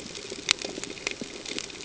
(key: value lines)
label: ambient
recorder: HydroMoth